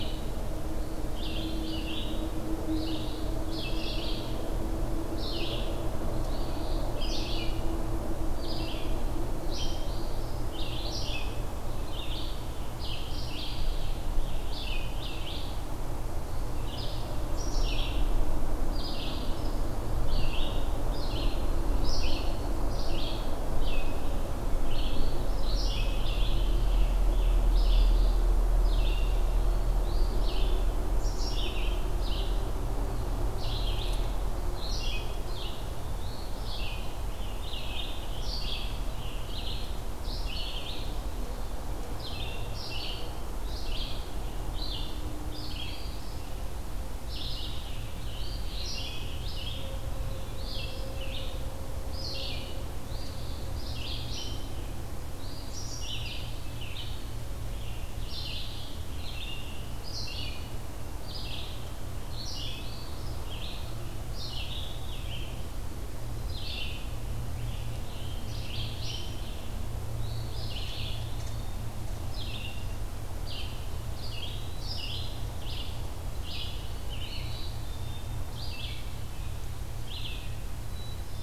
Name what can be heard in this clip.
Red-eyed Vireo, Eastern Phoebe, Scarlet Tanager, Eastern Wood-Pewee, Black-capped Chickadee